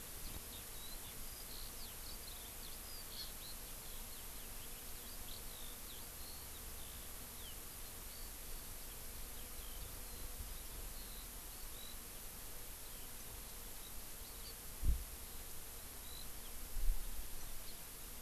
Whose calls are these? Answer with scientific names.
Alauda arvensis, Chlorodrepanis virens